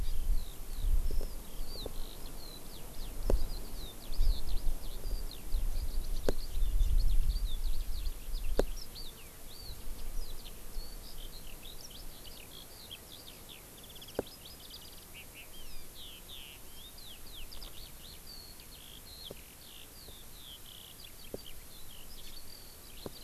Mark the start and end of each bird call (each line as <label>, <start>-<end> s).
Eurasian Skylark (Alauda arvensis), 0.0-23.2 s
Hawaii Amakihi (Chlorodrepanis virens), 22.2-22.3 s